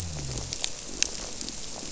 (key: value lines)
label: biophony
recorder: SoundTrap 300